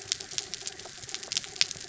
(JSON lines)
{"label": "anthrophony, mechanical", "recorder": "SoundTrap 300"}